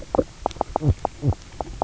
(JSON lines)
{"label": "biophony, knock croak", "recorder": "SoundTrap 300"}